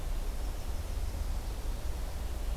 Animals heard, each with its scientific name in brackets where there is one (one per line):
Yellow-rumped Warbler (Setophaga coronata)